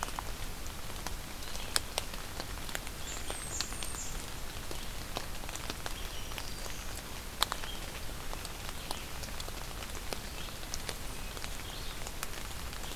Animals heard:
Red-eyed Vireo (Vireo olivaceus), Black-throated Green Warbler (Setophaga virens), Blackburnian Warbler (Setophaga fusca)

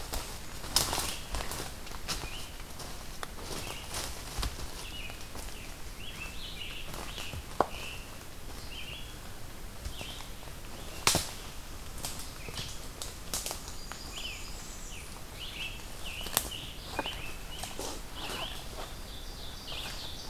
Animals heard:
Ovenbird (Seiurus aurocapilla), Blackburnian Warbler (Setophaga fusca), Scarlet Tanager (Piranga olivacea), Red-eyed Vireo (Vireo olivaceus)

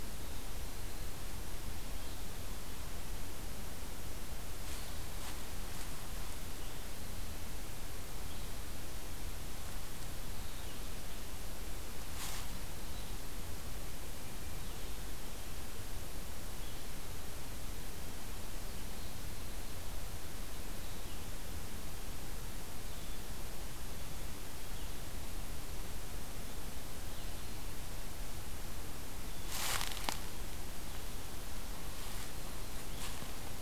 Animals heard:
Red-eyed Vireo (Vireo olivaceus)

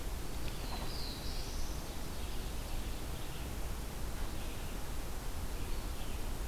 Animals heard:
Red-eyed Vireo (Vireo olivaceus), Ovenbird (Seiurus aurocapilla), Black-throated Blue Warbler (Setophaga caerulescens)

